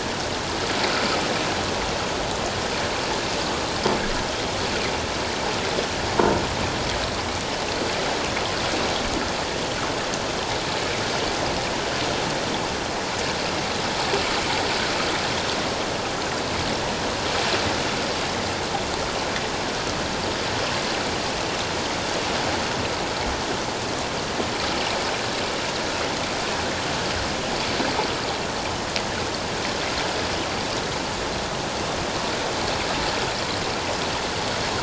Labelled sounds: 6.1	6.4	croaking sound likely from a nearby submerged object, 0.88 to 1.1 kHz

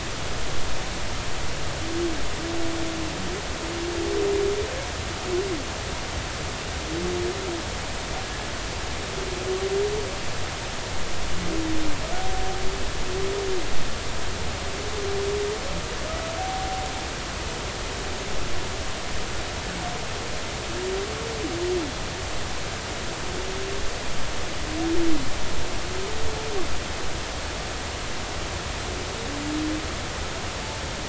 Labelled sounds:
16.4	16.9	humpback whale, 0.80 to 0.83 kHz

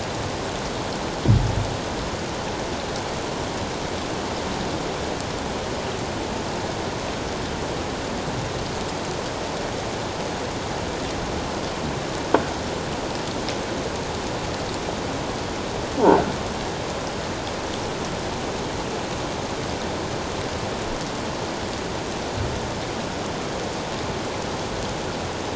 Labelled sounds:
16.0	16.3	croaking sound likely from a nearby submerged object, 1.3 to 1.6 kHz

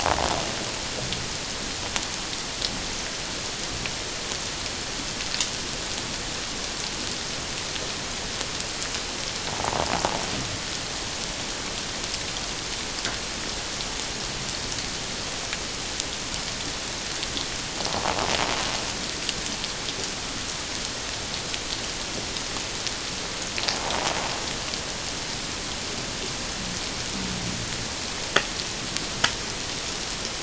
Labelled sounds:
9.5	9.8	invertebrate grinding on or near the hydrophone, 0.78 to 1.1 kHz

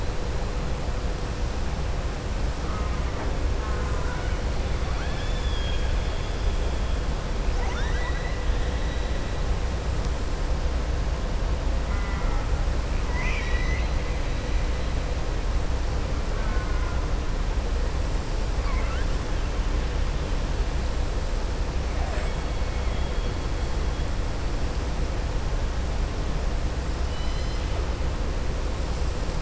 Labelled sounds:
2.6	3.3	killer whale, southern resident, 0.62 to 2.2 kHz
4.8	6.4	killer whale, southern resident, 1.1 to 7.0 kHz
7.5	8.4	killer whale, southern resident, 0.78 to 6.3 kHz
13.0	13.9	killer whale, southern resident, 1.0 to 6.1 kHz
16.3	17.0	killer whale, southern resident, 0.93 to 2.2 kHz
18.5	19.1	killer whale, southern resident, 1.0 to 3.5 kHz
27.0	27.6	killer whale, southern resident, 2.0 to 6.1 kHz

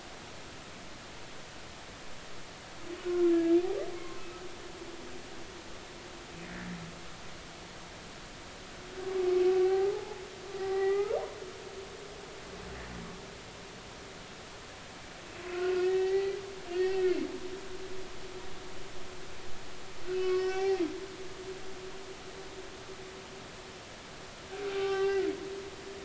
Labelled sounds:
3.9	4.3	humpback whale, 1.0 to 1.5 kHz
9.6	11.2	humpback whale, 0.80 to 2.5 kHz
15.5	16.4	humpback whale, 0.80 to 2.7 kHz
16.7	17.2	humpback whale, 1.7 to 4.6 kHz
20.1	20.8	humpback whale, 0.80 to 5.8 kHz
24.7	25.3	humpback whale, 0.80 to 3.2 kHz

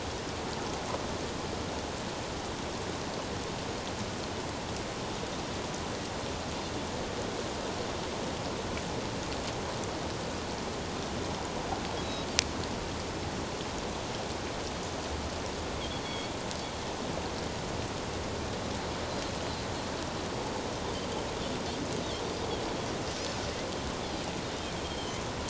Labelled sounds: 12.0	12.3	Pacific white-sided dolphin, 3.8 to 4.0 kHz
16.0	16.3	Pacific white-sided dolphin, 3.2 to 3.4 kHz
24.8	25.2	Pacific white-sided dolphin, 2.9 to 3.3 kHz

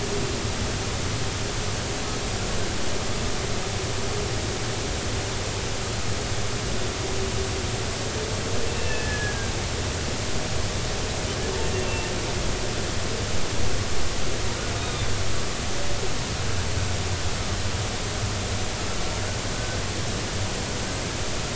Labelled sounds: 8.6	9.5	humpback whale, 1.5 to 2.7 kHz
11.7	12.1	humpback whale, 2.6 to 2.8 kHz
14.8	15.1	humpback whale, 2.3 to 2.5 kHz

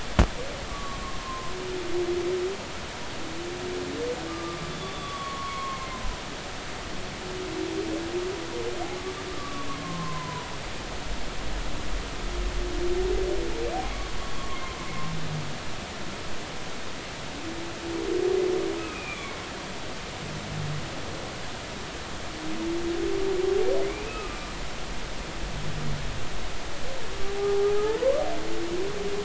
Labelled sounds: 0.7	1.5	humpback whale, 0.96 to 1.2 kHz
4.3	5.9	humpback whale, 1.0 to 3.5 kHz
9.4	10.5	humpback whale, 0.93 to 1.2 kHz
18.8	19.4	humpback whale, 1.1 to 2.6 kHz
23.9	24.4	humpback whale, 1.2 to 2.7 kHz
27.8	28.2	humpback whale, 0.83 to 1.2 kHz

